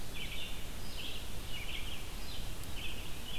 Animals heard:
Red-eyed Vireo (Vireo olivaceus)

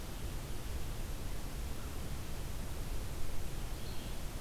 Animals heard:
Red-eyed Vireo (Vireo olivaceus)

